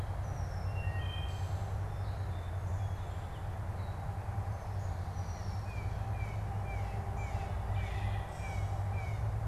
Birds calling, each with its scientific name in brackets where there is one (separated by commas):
Blue Jay (Cyanocitta cristata), unidentified bird, Wood Thrush (Hylocichla mustelina), Red-winged Blackbird (Agelaius phoeniceus)